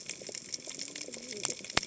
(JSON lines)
{"label": "biophony, cascading saw", "recorder": "HydroMoth"}